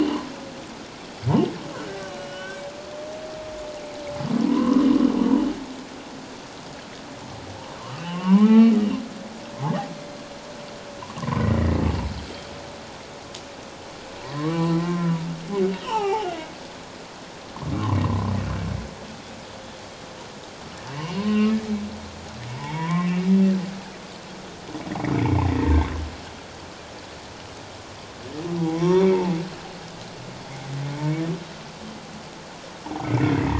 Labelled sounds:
2.1	2.6	humpback whale, 1.4 to 3.1 kHz
4.4	4.8	humpback whale, 0.91 to 1.3 kHz
7.8	8.8	humpback whale, 0.88 to 3.2 kHz
11.2	11.8	humpback whale, 0.91 to 2.0 kHz
14.2	15.3	humpback whale, 0.88 to 2.0 kHz
15.8	16.4	humpback whale, 0.78 to 6.0 kHz
18.0	18.3	humpback whale, 0.97 to 1.2 kHz
20.9	21.6	humpback whale, 0.94 to 3.0 kHz
22.5	23.2	humpback whale, 0.81 to 2.8 kHz
25.1	25.7	humpback whale, 1.7 to 2.5 kHz
28.6	29.3	humpback whale, 0.78 to 5.8 kHz
30.9	31.2	humpback whale, 2.1 to 2.3 kHz
33.0	33.3	humpback whale, 2.0 to 2.4 kHz

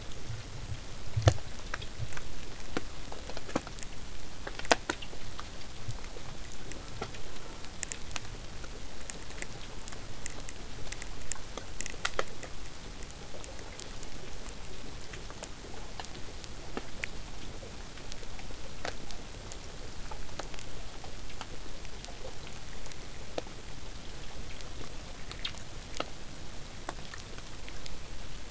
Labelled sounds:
6.7	7.8	killer whale, southern resident, J pod, call S04, 0.15 to 1.5 kHz

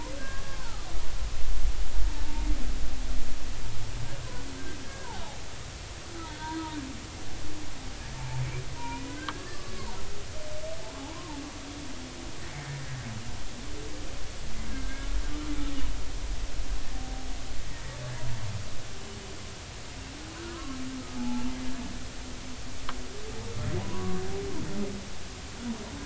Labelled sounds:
0.2	0.9	humpback whale, 0.80 to 1.7 kHz
2.2	2.5	humpback whale, 0.83 to 0.96 kHz
4.8	5.1	humpback whale, 1.5 to 1.8 kHz
6.3	6.8	humpback whale, 0.86 to 1.7 kHz
8.1	8.4	humpback whale, 0.83 to 1.0 kHz
8.8	9.6	humpback whale, 0.86 to 2.5 kHz
11.0	11.4	humpback whale, 0.80 to 1.1 kHz
12.6	12.9	humpback whale, 1.8 to 1.9 kHz
14.7	15.1	humpback whale, 1.5 to 1.7 kHz
20.5	21.6	humpback whale, 0.80 to 1.2 kHz
23.8	24.2	humpback whale, 0.93 to 1.2 kHz

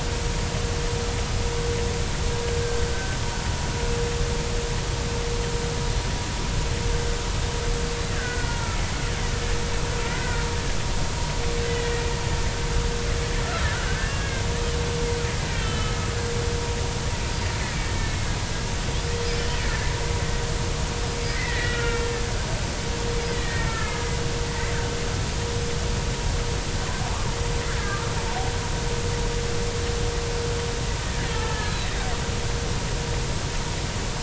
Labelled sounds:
2.6	3.2	killer whale, Bigg's (transient), 1.5 to 1.6 kHz
8.2	8.8	killer whale, Bigg's (transient), 1.2 to 1.7 kHz
10.0	10.5	killer whale, Bigg's (transient), 1.3 to 2.1 kHz
11.7	11.9	killer whale, Bigg's (transient), 1.9 to 2.0 kHz
13.4	14.4	killer whale, Bigg's (transient), 1.2 to 1.7 kHz
15.5	16.0	killer whale, Bigg's (transient), 2.5 to 3.3 kHz
17.6	18.2	killer whale, Bigg's (transient), 1.7 to 2.0 kHz
19.0	19.3	killer whale, Bigg's (transient), 2.1 to 2.3 kHz
21.3	22.0	killer whale, Bigg's (transient), 1.3 to 2.2 kHz
23.3	24.0	killer whale, Bigg's (transient), 1.2 to 2.1 kHz
31.3	31.9	killer whale, Bigg's (transient), 1.2 to 4.2 kHz

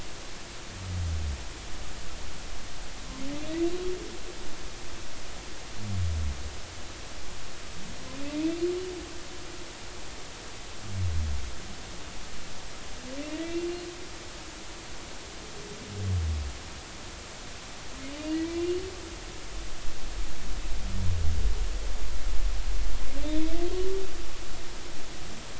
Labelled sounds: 13.3	13.7	humpback whale, 1.8 to 2.8 kHz
18.5	18.8	humpback whale, 2.3 to 2.9 kHz

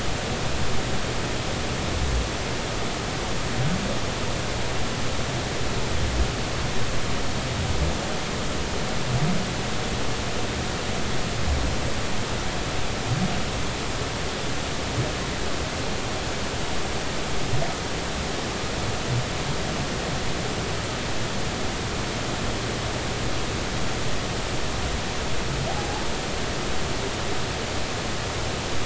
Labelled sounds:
25.7	26.0	humpback whale, 0.80 to 0.93 kHz

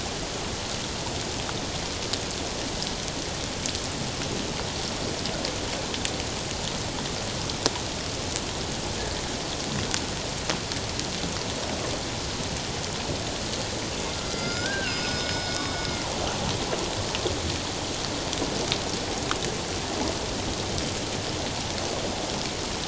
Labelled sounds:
14.2	15.6	killer whale, northern resident, G clan, 1.2 to 5.2 kHz

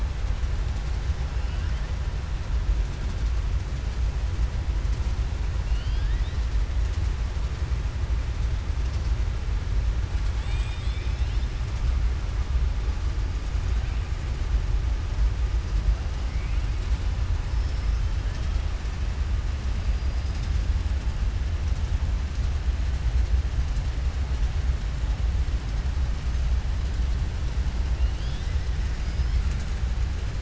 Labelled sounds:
5.6	6.4	killer whale, southern resident, 1.6 to 5.2 kHz
10.3	11.5	killer whale, southern resident, 2.0 to 5.3 kHz

